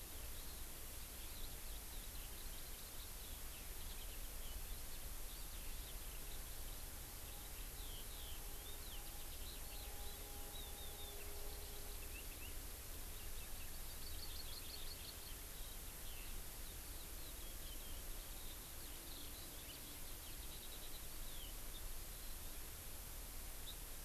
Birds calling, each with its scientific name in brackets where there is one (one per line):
Eurasian Skylark (Alauda arvensis)
Hawaii Amakihi (Chlorodrepanis virens)